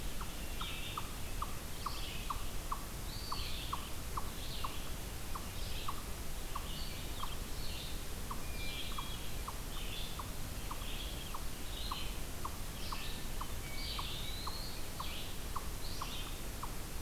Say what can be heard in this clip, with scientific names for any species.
Vireo olivaceus, unknown mammal, Contopus virens, Catharus guttatus